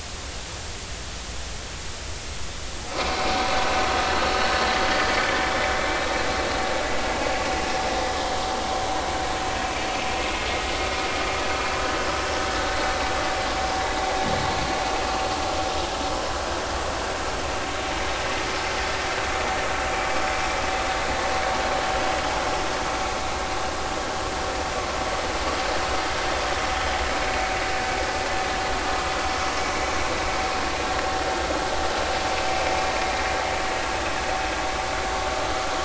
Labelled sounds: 5.4	5.7	vessel noise, 3.3 to 3.6 kHz
21.7	22.0	vessel noise, 3.0 to 3.1 kHz

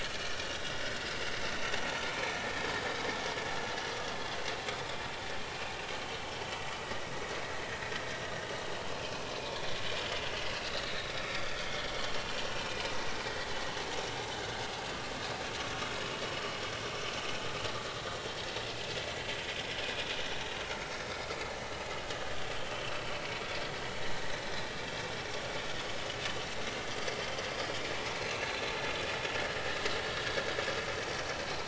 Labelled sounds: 0.2	1.0	vessel noise, 1.4 to 5.2 kHz
2.1	2.5	vessel noise, 2.4 to 2.6 kHz
9.0	9.8	vessel noise, 2.4 to 3.6 kHz
10.9	11.9	vessel noise, 1.2 to 4.9 kHz
12.5	12.9	vessel noise, 2.3 to 2.7 kHz
26.8	27.1	vessel noise, 4.7 to 4.9 kHz
28.1	28.6	vessel noise, 3.8 to 4.3 kHz
31.4	31.6	vessel noise, 4.0 to 4.2 kHz

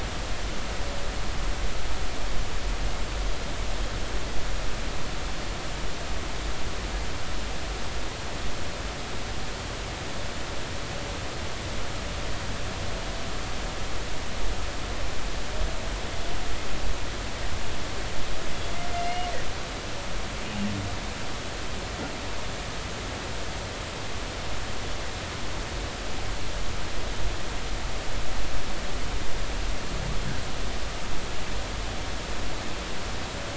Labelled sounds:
18.9	19.3	humpback whale, 2.0 to 3.0 kHz

